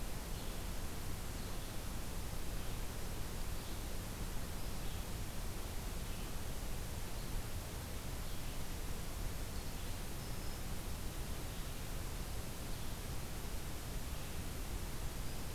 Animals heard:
Red-eyed Vireo (Vireo olivaceus), Black-throated Green Warbler (Setophaga virens)

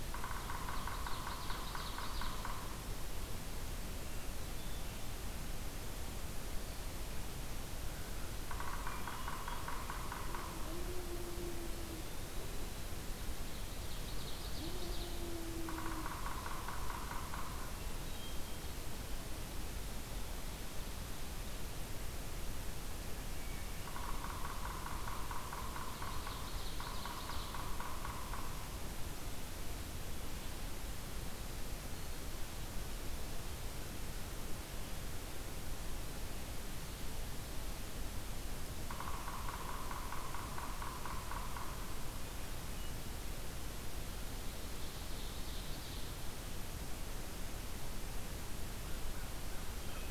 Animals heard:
Ovenbird (Seiurus aurocapilla), Hermit Thrush (Catharus guttatus), Yellow-bellied Sapsucker (Sphyrapicus varius), American Crow (Corvus brachyrhynchos), Eastern Wood-Pewee (Contopus virens)

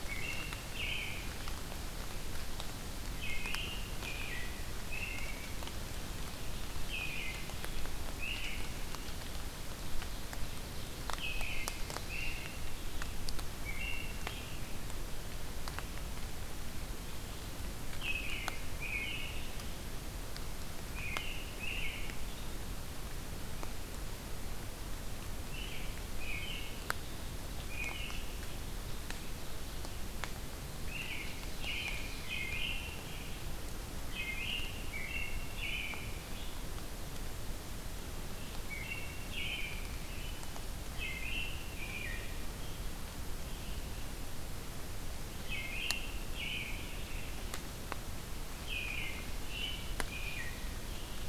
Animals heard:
American Robin (Turdus migratorius), Red-eyed Vireo (Vireo olivaceus), Ovenbird (Seiurus aurocapilla)

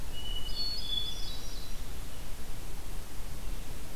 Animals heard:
Hermit Thrush (Catharus guttatus)

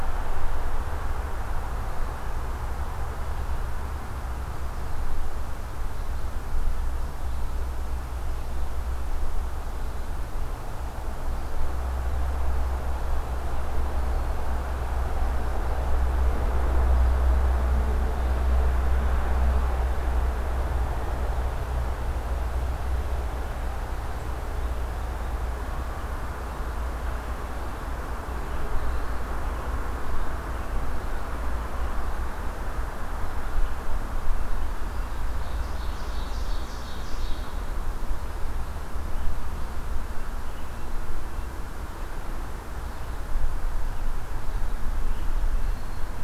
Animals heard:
Ovenbird (Seiurus aurocapilla)

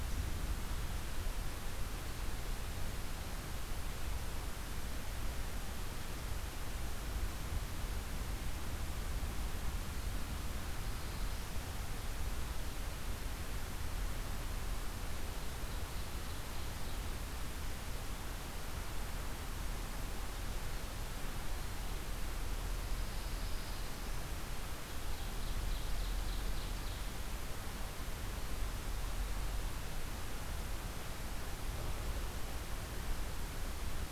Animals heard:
Ovenbird (Seiurus aurocapilla), Pine Warbler (Setophaga pinus), Black-throated Blue Warbler (Setophaga caerulescens)

